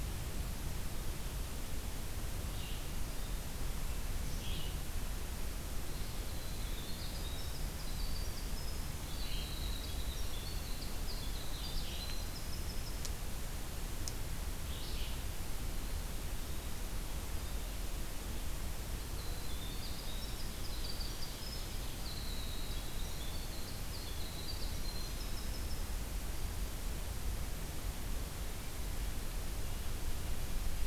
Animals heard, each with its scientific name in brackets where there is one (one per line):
Red-eyed Vireo (Vireo olivaceus)
Ovenbird (Seiurus aurocapilla)
Winter Wren (Troglodytes hiemalis)